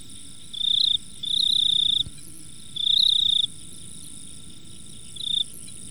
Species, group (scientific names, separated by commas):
Teleogryllus mitratus, Orthoptera